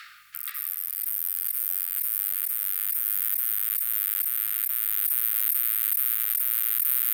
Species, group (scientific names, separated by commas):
Pycnogaster jugicola, Orthoptera